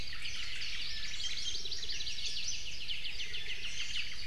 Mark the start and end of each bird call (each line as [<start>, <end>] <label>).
[0.00, 0.90] Omao (Myadestes obscurus)
[0.80, 2.40] Iiwi (Drepanis coccinea)
[0.80, 2.60] Hawaii Amakihi (Chlorodrepanis virens)
[2.70, 4.10] Apapane (Himatione sanguinea)
[3.20, 4.00] Iiwi (Drepanis coccinea)
[3.50, 4.26] Omao (Myadestes obscurus)